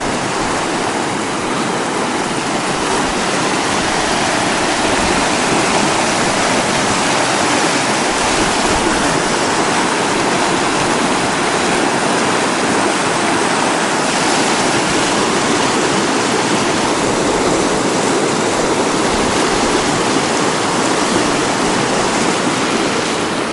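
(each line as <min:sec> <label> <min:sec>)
0:00.0 A gentle, continuous flow of water with the soft babble of a nearby stream or river, creating a calm and natural backdrop. 0:23.5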